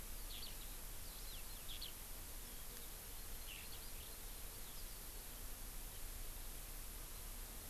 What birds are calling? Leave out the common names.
Alauda arvensis